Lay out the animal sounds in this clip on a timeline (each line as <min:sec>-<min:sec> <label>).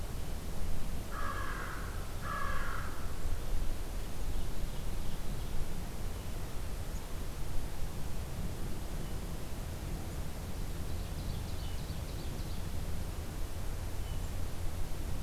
0:01.0-0:03.0 American Crow (Corvus brachyrhynchos)
0:04.0-0:05.7 Ovenbird (Seiurus aurocapilla)
0:10.7-0:12.8 Ovenbird (Seiurus aurocapilla)